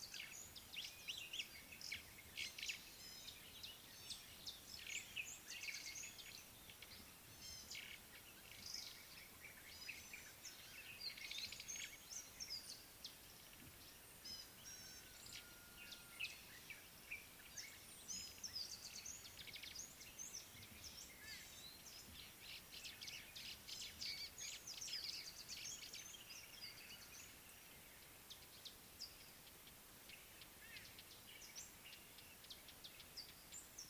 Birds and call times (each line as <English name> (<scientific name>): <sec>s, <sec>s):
White-browed Sparrow-Weaver (Plocepasser mahali): 2.6s, 11.4s, 24.2s, 30.9s
Gray-backed Camaroptera (Camaroptera brevicaudata): 7.6s, 14.4s, 21.5s
White-bellied Go-away-bird (Corythaixoides leucogaster): 30.7s